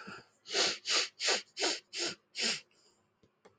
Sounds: Sniff